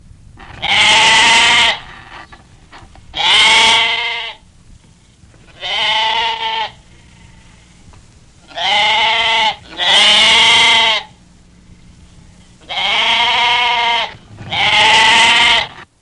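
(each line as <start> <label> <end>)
0.0 An old recording of a sheep bleating. 16.0
0.3 A sheep bleats. 2.4
3.1 A sheep bleats. 4.7
5.5 A sheep bleats. 7.0
8.3 A sheep bleats repeatedly. 11.3
12.6 A sheep bleats repeatedly. 15.8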